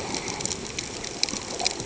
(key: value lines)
label: ambient
recorder: HydroMoth